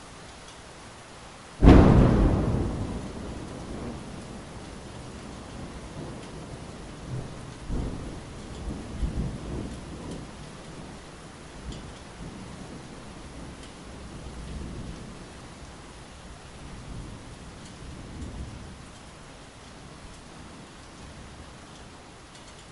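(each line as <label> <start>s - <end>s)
A thunderclap occurs loudly in the distance. 1.6s - 4.3s
Thunderstorm sounds in the background. 7.0s - 22.7s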